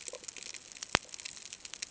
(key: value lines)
label: ambient
recorder: HydroMoth